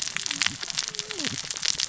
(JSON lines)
{"label": "biophony, cascading saw", "recorder": "SoundTrap 600 or HydroMoth"}